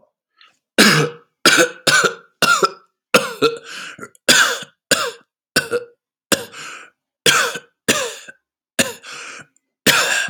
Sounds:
Cough